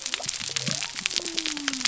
{"label": "biophony", "recorder": "SoundTrap 300"}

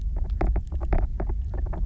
{"label": "biophony, knock croak", "recorder": "SoundTrap 300"}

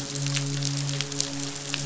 {"label": "biophony, midshipman", "recorder": "SoundTrap 500"}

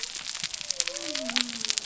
{"label": "biophony", "recorder": "SoundTrap 300"}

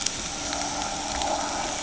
{"label": "ambient", "recorder": "HydroMoth"}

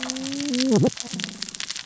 {"label": "biophony, cascading saw", "recorder": "SoundTrap 600 or HydroMoth"}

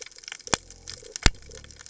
{"label": "biophony", "recorder": "HydroMoth"}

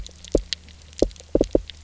{"label": "biophony", "recorder": "SoundTrap 300"}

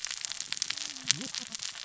{"label": "biophony, cascading saw", "recorder": "SoundTrap 600 or HydroMoth"}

